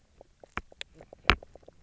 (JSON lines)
{"label": "biophony, knock croak", "recorder": "SoundTrap 300"}